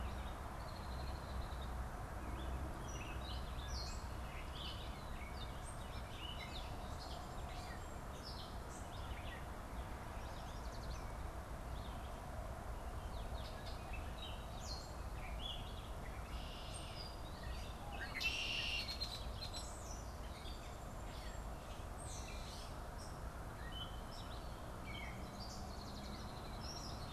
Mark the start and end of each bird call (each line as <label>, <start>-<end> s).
Gray Catbird (Dumetella carolinensis), 0.0-27.1 s
Red-winged Blackbird (Agelaius phoeniceus), 0.4-1.8 s
Yellow Warbler (Setophaga petechia), 10.0-11.2 s
Red-winged Blackbird (Agelaius phoeniceus), 15.7-17.3 s
Red-winged Blackbird (Agelaius phoeniceus), 17.8-20.0 s
Red-winged Blackbird (Agelaius phoeniceus), 25.4-27.1 s